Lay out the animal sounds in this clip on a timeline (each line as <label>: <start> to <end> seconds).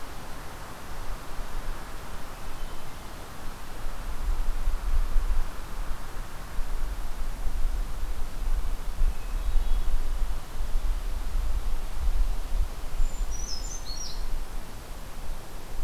Hermit Thrush (Catharus guttatus): 9.0 to 9.9 seconds
Brown Creeper (Certhia americana): 12.9 to 14.3 seconds